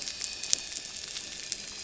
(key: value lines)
label: anthrophony, boat engine
recorder: SoundTrap 300